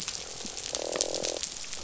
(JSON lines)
{"label": "biophony, croak", "recorder": "SoundTrap 500"}